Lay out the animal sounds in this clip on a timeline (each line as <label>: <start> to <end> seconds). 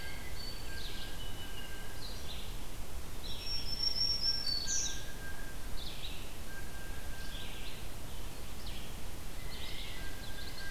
Blue Jay (Cyanocitta cristata): 0.0 to 2.0 seconds
Song Sparrow (Melospiza melodia): 0.0 to 2.2 seconds
Red-eyed Vireo (Vireo olivaceus): 0.0 to 6.4 seconds
Black-throated Green Warbler (Setophaga virens): 3.0 to 5.3 seconds
Blue Jay (Cyanocitta cristata): 4.1 to 5.8 seconds
Blue Jay (Cyanocitta cristata): 6.4 to 7.3 seconds
Red-eyed Vireo (Vireo olivaceus): 7.1 to 10.7 seconds
Blue Jay (Cyanocitta cristata): 9.3 to 10.7 seconds
Common Yellowthroat (Geothlypis trichas): 10.0 to 10.7 seconds